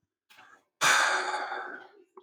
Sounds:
Sigh